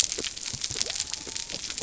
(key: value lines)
label: biophony
recorder: SoundTrap 300